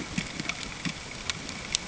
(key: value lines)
label: ambient
recorder: HydroMoth